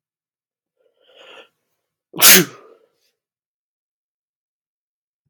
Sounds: Sneeze